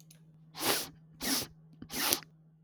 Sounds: Sniff